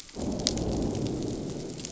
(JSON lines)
{"label": "biophony, growl", "recorder": "SoundTrap 500"}